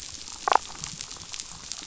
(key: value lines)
label: biophony, damselfish
recorder: SoundTrap 500